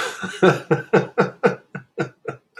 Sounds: Laughter